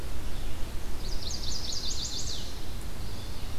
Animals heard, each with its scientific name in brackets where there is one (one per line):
Chestnut-sided Warbler (Setophaga pensylvanica)